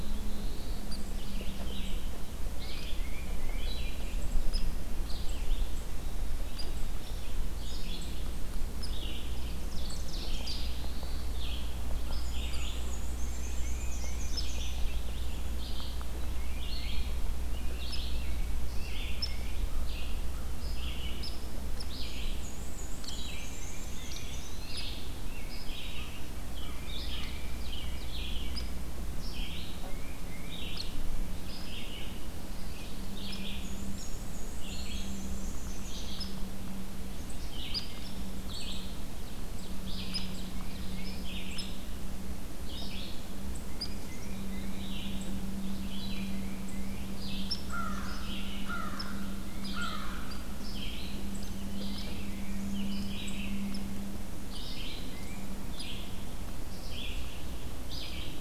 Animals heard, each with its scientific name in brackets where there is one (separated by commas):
Eastern Wood-Pewee (Contopus virens), American Crow (Corvus brachyrhynchos), Red-eyed Vireo (Vireo olivaceus), Hairy Woodpecker (Dryobates villosus), Pine Warbler (Setophaga pinus), Black-throated Blue Warbler (Setophaga caerulescens), American Robin (Turdus migratorius), Black-capped Chickadee (Poecile atricapillus), Ovenbird (Seiurus aurocapilla), Tufted Titmouse (Baeolophus bicolor), Black-and-white Warbler (Mniotilta varia)